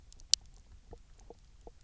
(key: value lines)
label: biophony, knock croak
recorder: SoundTrap 300